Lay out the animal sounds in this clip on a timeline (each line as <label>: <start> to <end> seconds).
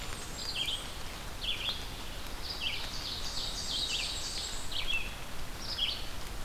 Blackburnian Warbler (Setophaga fusca): 0.0 to 1.0 seconds
Red-eyed Vireo (Vireo olivaceus): 0.0 to 6.4 seconds
Ovenbird (Seiurus aurocapilla): 2.5 to 4.8 seconds
Black-and-white Warbler (Mniotilta varia): 3.1 to 4.8 seconds